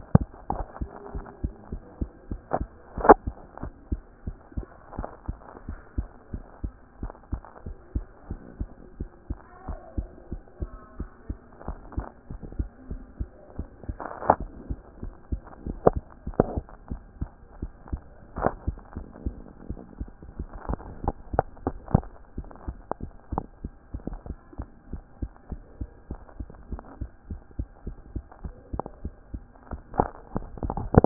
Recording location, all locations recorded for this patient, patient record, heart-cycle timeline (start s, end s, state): mitral valve (MV)
aortic valve (AV)+pulmonary valve (PV)+tricuspid valve (TV)+mitral valve (MV)
#Age: Child
#Sex: Female
#Height: 114.0 cm
#Weight: 16.5 kg
#Pregnancy status: False
#Murmur: Absent
#Murmur locations: nan
#Most audible location: nan
#Systolic murmur timing: nan
#Systolic murmur shape: nan
#Systolic murmur grading: nan
#Systolic murmur pitch: nan
#Systolic murmur quality: nan
#Diastolic murmur timing: nan
#Diastolic murmur shape: nan
#Diastolic murmur grading: nan
#Diastolic murmur pitch: nan
#Diastolic murmur quality: nan
#Outcome: Abnormal
#Campaign: 2014 screening campaign
0.00	0.16	systole
0.16	0.30	S2
0.30	0.52	diastole
0.52	0.66	S1
0.66	0.78	systole
0.78	0.92	S2
0.92	1.14	diastole
1.14	1.26	S1
1.26	1.40	systole
1.40	1.54	S2
1.54	1.72	diastole
1.72	1.82	S1
1.82	1.96	systole
1.96	2.10	S2
2.10	2.30	diastole
2.30	2.42	S1
2.42	2.54	systole
2.54	2.70	S2
2.70	3.00	diastole
3.00	3.18	S1
3.18	3.36	systole
3.36	3.42	S2
3.42	3.62	diastole
3.62	3.72	S1
3.72	3.88	systole
3.88	4.02	S2
4.02	4.26	diastole
4.26	4.38	S1
4.38	4.54	systole
4.54	4.68	S2
4.68	4.94	diastole
4.94	5.08	S1
5.08	5.24	systole
5.24	5.40	S2
5.40	5.66	diastole
5.66	5.80	S1
5.80	5.94	systole
5.94	6.08	S2
6.08	6.32	diastole
6.32	6.44	S1
6.44	6.60	systole
6.60	6.72	S2
6.72	7.00	diastole
7.00	7.12	S1
7.12	7.28	systole
7.28	7.44	S2
7.44	7.66	diastole
7.66	7.76	S1
7.76	7.90	systole
7.90	8.06	S2
8.06	8.28	diastole
8.28	8.40	S1
8.40	8.56	systole
8.56	8.70	S2
8.70	8.96	diastole
8.96	9.08	S1
9.08	9.26	systole
9.26	9.40	S2
9.40	9.68	diastole
9.68	9.80	S1
9.80	9.96	systole
9.96	10.10	S2
10.10	10.30	diastole
10.30	10.42	S1
10.42	10.58	systole
10.58	10.70	S2
10.70	10.96	diastole
10.96	11.08	S1
11.08	11.26	systole
11.26	11.38	S2
11.38	11.66	diastole
11.66	11.80	S1
11.80	11.96	systole
11.96	12.06	S2
12.06	12.30	diastole
12.30	12.42	S1
12.42	12.56	systole
12.56	12.70	S2
12.70	12.88	diastole
12.88	13.02	S1
13.02	13.16	systole
13.16	13.30	S2
13.30	13.56	diastole
13.56	13.68	S1
13.68	13.88	systole
13.88	14.00	S2
14.00	14.26	diastole
14.26	14.40	S1
14.40	14.64	systole
14.64	14.78	S2
14.78	15.02	diastole
15.02	15.14	S1
15.14	15.28	systole
15.28	15.42	S2
15.42	15.66	diastole
15.66	15.80	S1
15.80	15.94	systole
15.94	16.06	S2
16.06	16.26	diastole
16.26	16.38	S1
16.38	16.54	systole
16.54	16.66	S2
16.66	16.90	diastole
16.90	17.02	S1
17.02	17.20	systole
17.20	17.32	S2
17.32	17.60	diastole
17.60	17.72	S1
17.72	17.92	systole
17.92	18.06	S2
18.06	18.36	diastole
18.36	18.54	S1
18.54	18.64	systole
18.64	18.76	S2
18.76	18.96	diastole
18.96	19.08	S1
19.08	19.24	systole
19.24	19.38	S2
19.38	19.64	diastole
19.64	19.78	S1
19.78	19.98	systole
19.98	20.12	S2
20.12	20.38	diastole
20.38	20.50	S1
20.50	20.68	systole
20.68	20.82	S2
20.82	21.02	diastole
21.02	21.18	S1
21.18	21.32	systole
21.32	21.46	S2
21.46	21.64	diastole
21.64	21.78	S1
21.78	21.94	systole
21.94	22.10	S2
22.10	22.36	diastole
22.36	22.50	S1
22.50	22.66	systole
22.66	22.80	S2
22.80	23.02	diastole
23.02	23.12	S1
23.12	23.32	systole
23.32	23.44	S2
23.44	23.62	diastole
23.62	23.72	S1
23.72	23.90	systole
23.90	24.02	S2
24.02	24.26	diastole
24.26	24.38	S1
24.38	24.58	systole
24.58	24.68	S2
24.68	24.92	diastole
24.92	25.04	S1
25.04	25.18	systole
25.18	25.30	S2
25.30	25.50	diastole
25.50	25.62	S1
25.62	25.80	systole
25.80	25.88	S2
25.88	26.10	diastole
26.10	26.20	S1
26.20	26.36	systole
26.36	26.48	S2
26.48	26.70	diastole
26.70	26.82	S1
26.82	27.00	systole
27.00	27.10	S2
27.10	27.30	diastole
27.30	27.40	S1
27.40	27.56	systole
27.56	27.66	S2
27.66	27.86	diastole
27.86	27.98	S1
27.98	28.14	systole
28.14	28.24	S2
28.24	28.44	diastole
28.44	28.56	S1
28.56	28.72	systole
28.72	28.84	S2
28.84	29.04	diastole
29.04	29.14	S1
29.14	29.32	systole
29.32	29.44	S2
29.44	29.70	diastole
29.70	29.82	S1
29.82	29.96	systole
29.96	30.10	S2
30.10	30.34	diastole
30.34	30.48	S1
30.48	30.62	systole
30.62	30.74	S2
30.74	30.92	diastole
30.92	31.06	S1